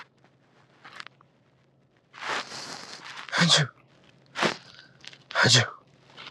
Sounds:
Sneeze